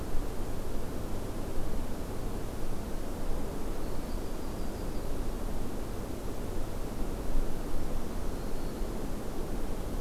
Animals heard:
Black-throated Green Warbler (Setophaga virens), Yellow-rumped Warbler (Setophaga coronata)

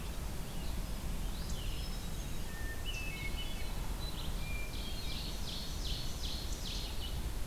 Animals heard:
Veery (Catharus fuscescens), Red-eyed Vireo (Vireo olivaceus), Hermit Thrush (Catharus guttatus), Ovenbird (Seiurus aurocapilla), Winter Wren (Troglodytes hiemalis)

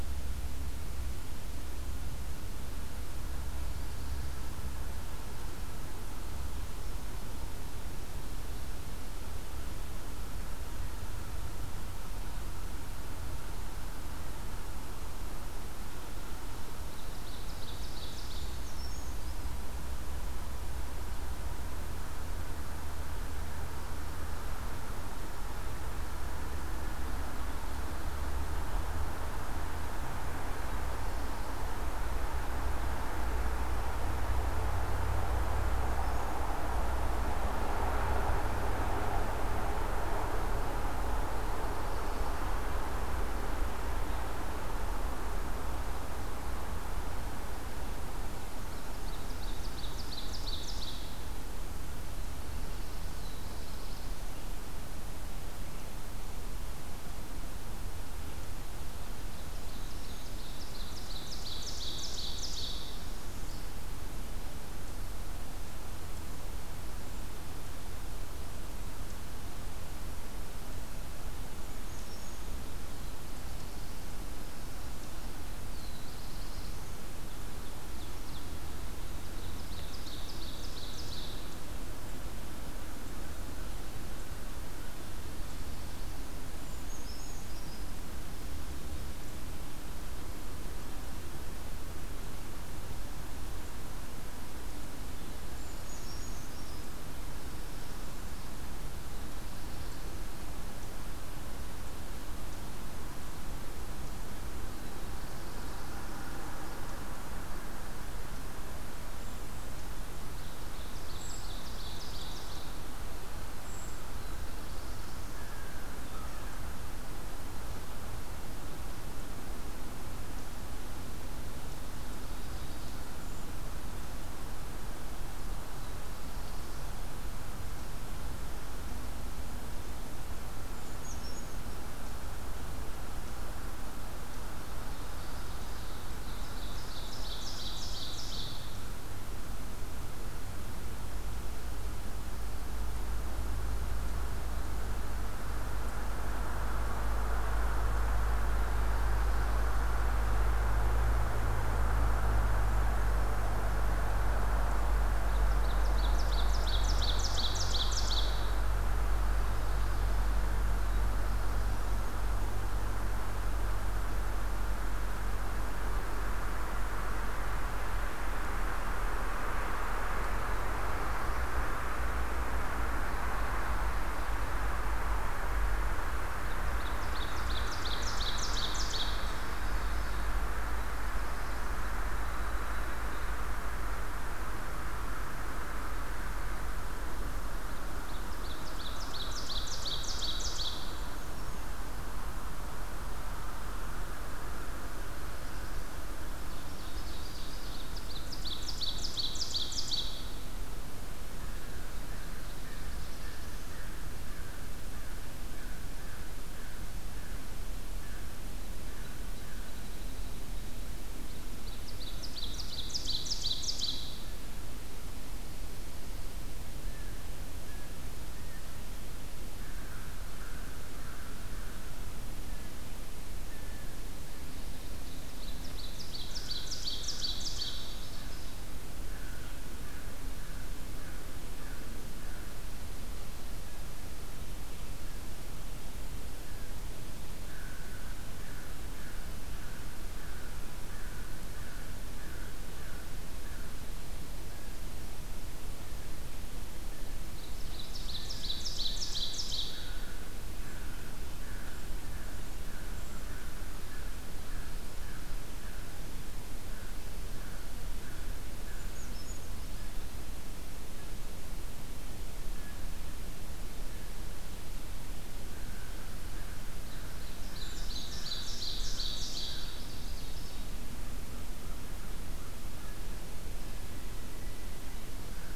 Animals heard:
American Crow (Corvus brachyrhynchos), Black-throated Blue Warbler (Setophaga caerulescens), Ovenbird (Seiurus aurocapilla), Brown Creeper (Certhia americana), Northern Parula (Setophaga americana)

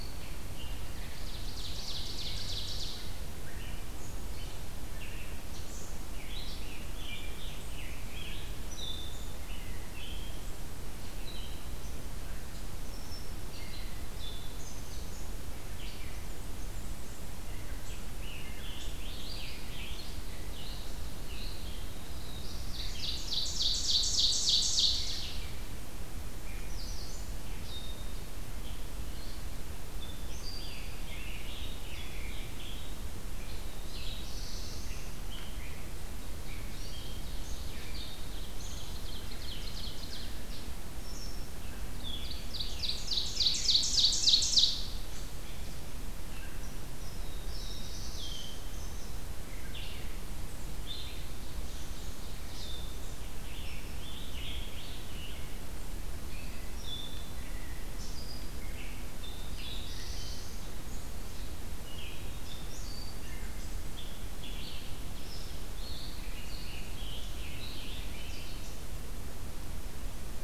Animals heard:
Scarlet Tanager (Piranga olivacea), Ovenbird (Seiurus aurocapilla), Red-eyed Vireo (Vireo olivaceus), Black-throated Blue Warbler (Setophaga caerulescens)

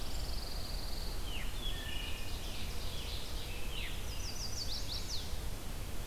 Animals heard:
Pine Warbler (Setophaga pinus), Ovenbird (Seiurus aurocapilla), Chestnut-sided Warbler (Setophaga pensylvanica), Veery (Catharus fuscescens), Wood Thrush (Hylocichla mustelina)

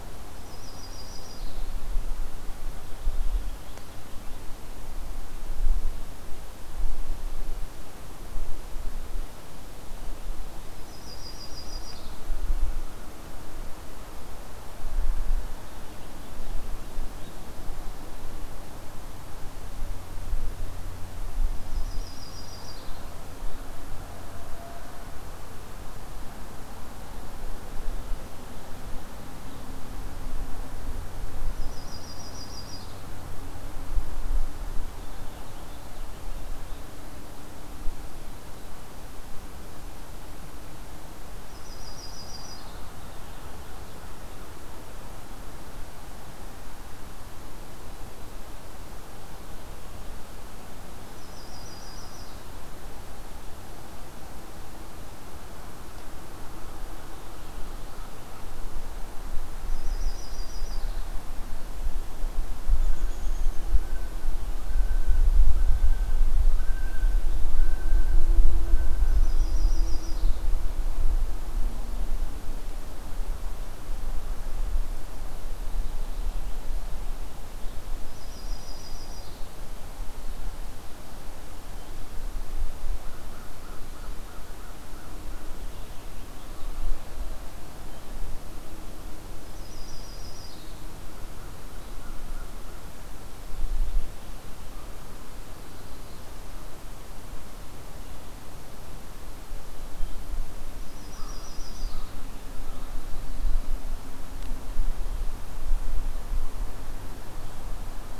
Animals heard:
American Robin (Turdus migratorius), Yellow-rumped Warbler (Setophaga coronata), American Crow (Corvus brachyrhynchos), Purple Finch (Haemorhous purpureus), Common Loon (Gavia immer)

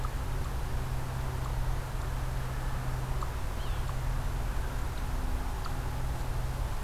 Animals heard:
Eastern Chipmunk (Tamias striatus), Yellow-bellied Sapsucker (Sphyrapicus varius)

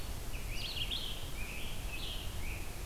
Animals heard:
Red-eyed Vireo (Vireo olivaceus), Scarlet Tanager (Piranga olivacea)

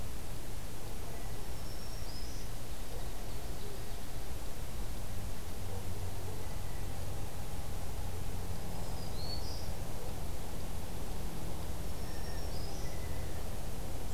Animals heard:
Black-throated Green Warbler (Setophaga virens), Blue Jay (Cyanocitta cristata), Ovenbird (Seiurus aurocapilla)

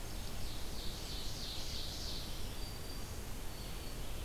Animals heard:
Ovenbird (Seiurus aurocapilla), Black-throated Green Warbler (Setophaga virens)

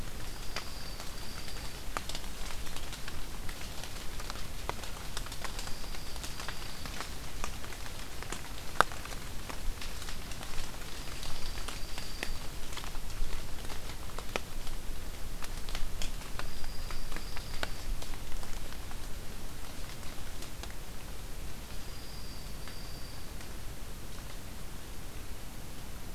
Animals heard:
Dark-eyed Junco (Junco hyemalis)

